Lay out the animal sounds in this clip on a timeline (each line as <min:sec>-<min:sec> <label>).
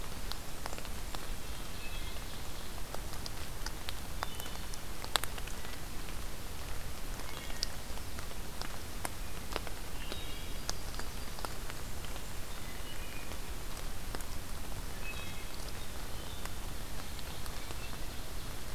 0:00.9-0:02.8 Ovenbird (Seiurus aurocapilla)
0:01.6-0:02.4 Wood Thrush (Hylocichla mustelina)
0:04.1-0:04.8 Wood Thrush (Hylocichla mustelina)
0:07.2-0:07.7 Wood Thrush (Hylocichla mustelina)
0:10.0-0:10.7 Wood Thrush (Hylocichla mustelina)
0:10.0-0:11.5 Yellow-rumped Warbler (Setophaga coronata)
0:12.5-0:13.4 Wood Thrush (Hylocichla mustelina)
0:15.0-0:15.6 Wood Thrush (Hylocichla mustelina)
0:16.7-0:18.7 Ovenbird (Seiurus aurocapilla)